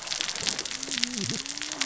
{"label": "biophony, cascading saw", "recorder": "SoundTrap 600 or HydroMoth"}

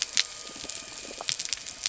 {"label": "anthrophony, boat engine", "recorder": "SoundTrap 300"}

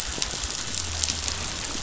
{"label": "biophony", "recorder": "SoundTrap 500"}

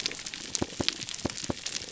{"label": "biophony", "recorder": "SoundTrap 300"}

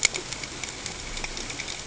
{"label": "ambient", "recorder": "HydroMoth"}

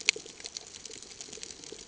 {"label": "ambient", "recorder": "HydroMoth"}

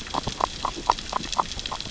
{"label": "biophony, grazing", "recorder": "SoundTrap 600 or HydroMoth"}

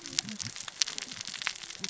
{"label": "biophony, cascading saw", "recorder": "SoundTrap 600 or HydroMoth"}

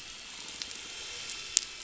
{"label": "anthrophony, boat engine", "recorder": "SoundTrap 500"}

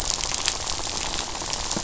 {"label": "biophony, rattle", "recorder": "SoundTrap 500"}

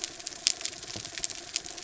{"label": "anthrophony, mechanical", "recorder": "SoundTrap 300"}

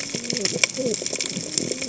{"label": "biophony, cascading saw", "recorder": "HydroMoth"}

